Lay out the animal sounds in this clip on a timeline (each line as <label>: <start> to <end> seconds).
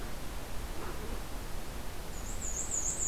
Black-and-white Warbler (Mniotilta varia): 2.0 to 3.1 seconds